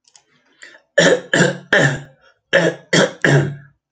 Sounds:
Throat clearing